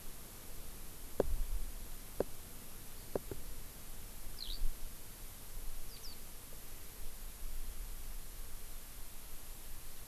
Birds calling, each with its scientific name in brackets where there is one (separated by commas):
Eurasian Skylark (Alauda arvensis)